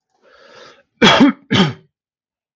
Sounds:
Cough